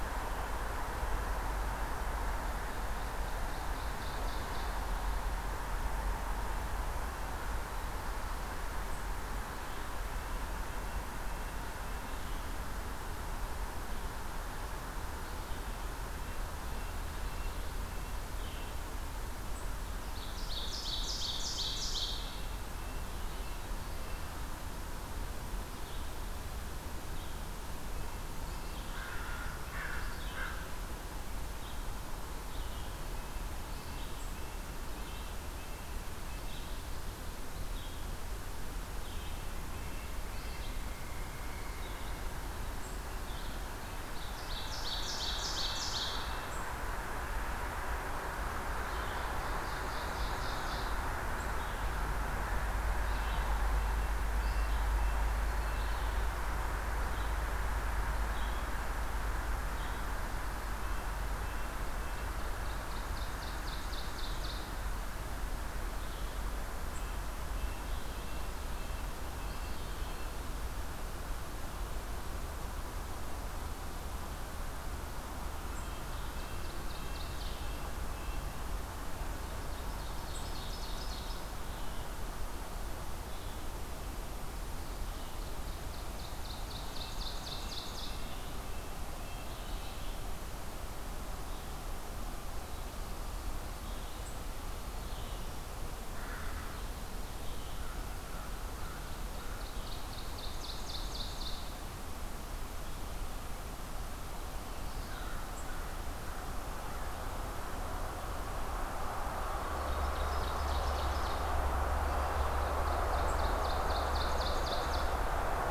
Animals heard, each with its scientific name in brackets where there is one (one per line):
American Crow (Corvus brachyrhynchos)
Red-breasted Nuthatch (Sitta canadensis)
Red-eyed Vireo (Vireo olivaceus)
Ovenbird (Seiurus aurocapilla)